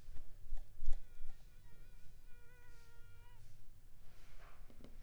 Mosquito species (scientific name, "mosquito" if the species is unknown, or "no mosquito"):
Anopheles pharoensis